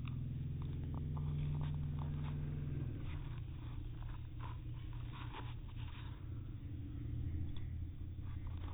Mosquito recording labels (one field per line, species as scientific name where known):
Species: no mosquito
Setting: cup